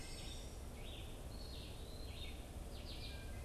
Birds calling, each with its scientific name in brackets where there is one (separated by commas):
Eastern Wood-Pewee (Contopus virens), Red-eyed Vireo (Vireo olivaceus), Wood Thrush (Hylocichla mustelina)